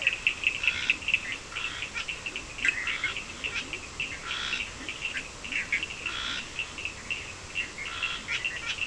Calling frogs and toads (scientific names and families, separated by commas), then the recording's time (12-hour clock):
Scinax perereca (Hylidae), Leptodactylus latrans (Leptodactylidae), Sphaenorhynchus surdus (Hylidae), Boana bischoffi (Hylidae)
4:15am